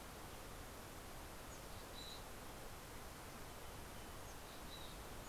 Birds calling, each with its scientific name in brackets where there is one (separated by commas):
Mountain Chickadee (Poecile gambeli)